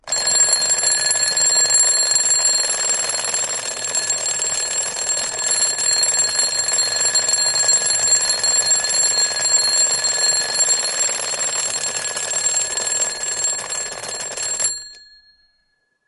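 0.0s Loud ringing of an old alarm clock continues. 14.9s

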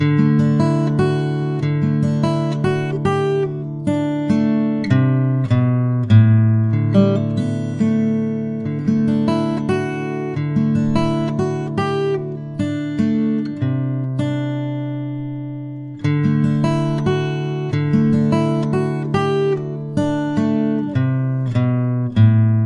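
0.0s Guitar music is playing. 22.7s

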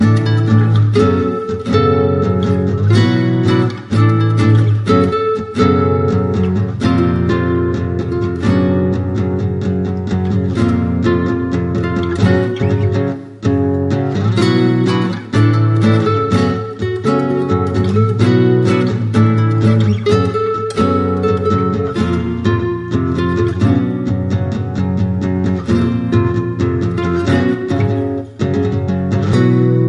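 0.0s A guitar is playing rhythmically. 29.9s

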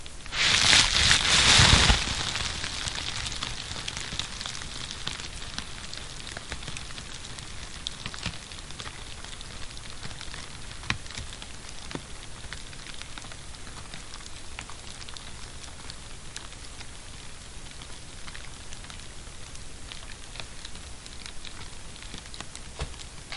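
0.0s A flame roars soundly in a non-periodic pattern inside a fireplace. 2.6s
2.6s Fire crackling quietly in a non-periodic pattern inside a fireplace. 23.3s

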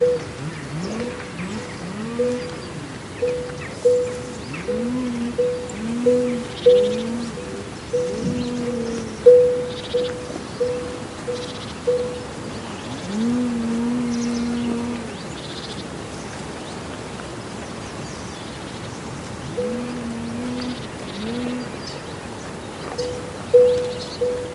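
0.0s A cowbell rings. 0.3s
0.0s Birds chirping continuously in a natural outdoor setting. 24.5s
0.5s A small engine running in the distance. 3.3s
1.0s Soft cowbell ringing repeatedly. 12.5s
4.6s A small engine running in the distance. 9.2s
12.8s A small engine running in the distance. 15.3s
19.5s A cowbell rings softly. 19.8s
19.5s Small engine running in the distance. 21.8s
22.9s A cowbell rings softly and repeatedly. 24.5s

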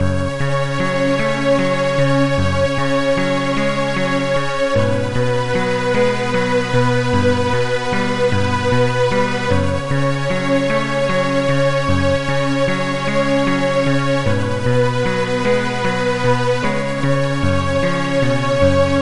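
0.0s An electric melody with piano and strings. 19.0s

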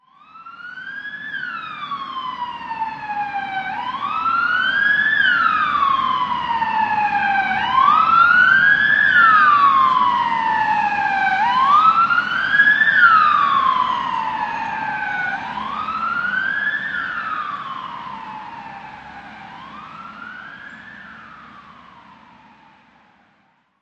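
0.0s An ambulance or fire truck siren starts from a distance, approaches closer, and then fades away. 23.8s

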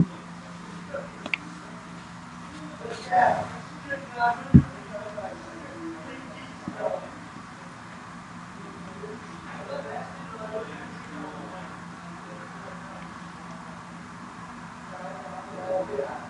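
0.0s Men talking continuously in the distance with muffled voices. 16.3s
0.0s Prolonged static noise. 16.3s
1.2s A brief clicking sound. 1.5s
4.5s A brief tap. 4.7s

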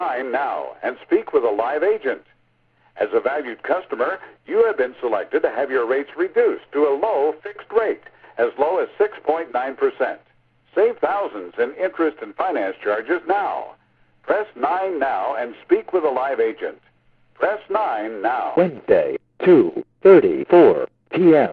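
0.0s A deep, raspy male voice is urging customers to call. 2.3s
3.0s A deep, raspy male voice is speaking to advertise a service. 13.8s
14.2s A deep, raspy male voice is urging customers to call. 18.6s
18.5s An artificial, robotic male voice announces the time on an answering machine. 21.5s

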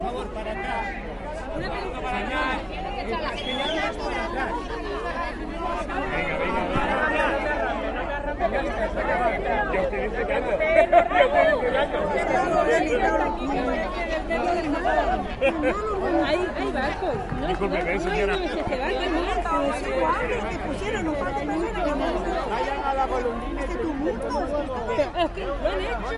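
0.0s People talking in a crowd. 26.2s
3.2s A loud whistling sound in the background. 3.9s
10.5s A man laughs loudly in the background. 11.3s
11.3s Men and women are discussing loudly and closely. 19.8s
15.3s A man is laughing in the background. 15.7s

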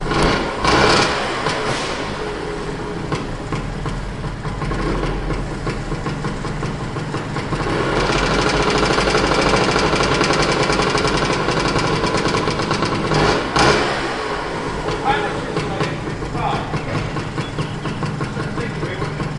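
0.0s A motorbike revs loudly and repeatedly in a garage. 2.3s
2.3s A motorbike engine rumbles loudly in a garage. 13.0s
13.0s A motorbike revs loudly in a garage. 14.2s
14.2s A person is speaking gently in the background. 19.3s
14.2s Motorbike engine rumbling softly. 19.3s

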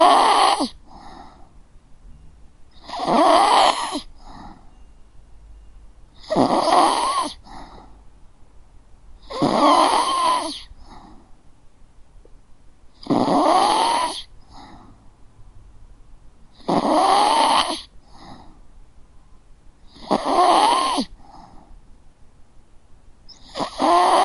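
2.8s A dog is snoring. 11.4s

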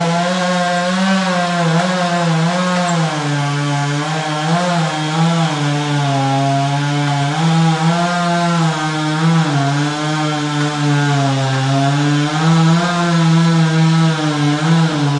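0.0s A chainsaw cuts through wood, producing a loud buzzing sound. 15.2s

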